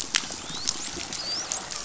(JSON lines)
{"label": "biophony, dolphin", "recorder": "SoundTrap 500"}